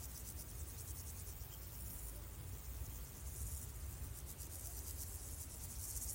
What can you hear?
Pseudochorthippus parallelus, an orthopteran